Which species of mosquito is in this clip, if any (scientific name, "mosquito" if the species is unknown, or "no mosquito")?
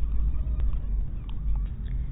mosquito